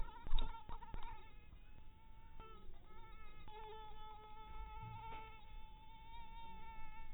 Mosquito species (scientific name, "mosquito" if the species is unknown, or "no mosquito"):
mosquito